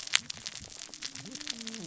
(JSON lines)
{"label": "biophony, cascading saw", "recorder": "SoundTrap 600 or HydroMoth"}